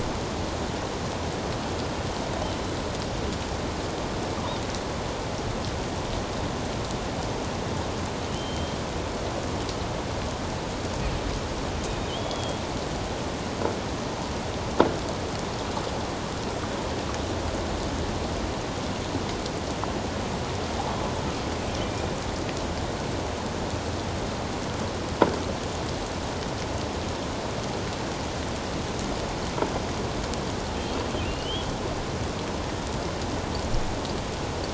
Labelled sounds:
8.3	8.8	killer whale, offshore, 2.8 to 3.2 kHz
11.8	12.6	killer whale, offshore, 2.4 to 3.8 kHz
21.8	22.1	killer whale, offshore, 2.3 to 2.5 kHz
31.2	31.7	killer whale, offshore, 2.6 to 3.4 kHz

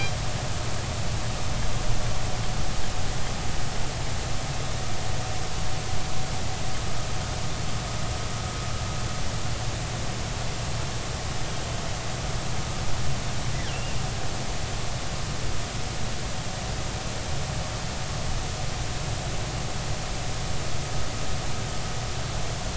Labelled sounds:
13.7	14.0	killer whale, northern resident, G clan, 2.6 to 2.9 kHz

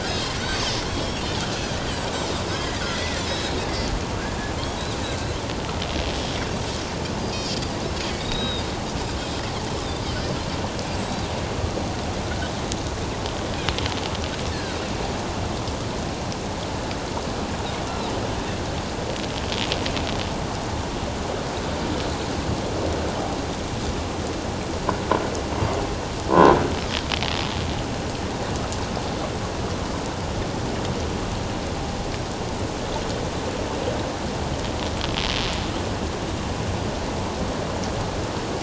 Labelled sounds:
0.0	1.2	Pacific white-sided dolphin, 1.3 to 6.5 kHz
1.8	3.5	Pacific white-sided dolphin, 1.7 to 5.3 kHz
5.0	5.3	Pacific white-sided dolphin, 1.5 to 1.8 kHz
8.2	8.7	Pacific white-sided dolphin, 3.6 to 5.2 kHz
10.0	11.3	Pacific white-sided dolphin, 3.8 to 5.3 kHz
14.5	14.8	Pacific white-sided dolphin, 1.4 to 1.8 kHz
26.3	26.6	croaking sound likely from a nearby submerged object, 0.91 to 1.1 kHz

